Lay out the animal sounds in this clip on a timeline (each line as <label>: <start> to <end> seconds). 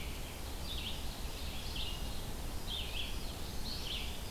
Red-eyed Vireo (Vireo olivaceus): 0.0 to 4.3 seconds
Ovenbird (Seiurus aurocapilla): 0.2 to 2.3 seconds
Indigo Bunting (Passerina cyanea): 3.1 to 4.3 seconds